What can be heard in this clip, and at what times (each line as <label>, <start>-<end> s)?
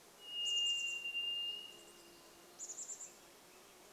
Varied Thrush song, 0-2 s
Chestnut-backed Chickadee call, 0-4 s
insect buzz, 0-4 s
Swainson's Thrush song, 2-4 s